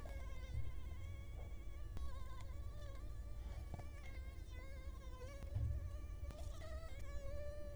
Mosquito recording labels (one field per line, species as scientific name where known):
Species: Culex quinquefasciatus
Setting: cup